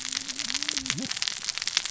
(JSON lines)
{"label": "biophony, cascading saw", "recorder": "SoundTrap 600 or HydroMoth"}